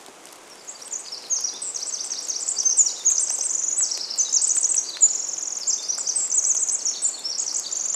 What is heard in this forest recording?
Pacific Wren song, rain